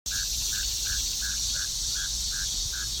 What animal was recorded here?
Neocurtilla hexadactyla, an orthopteran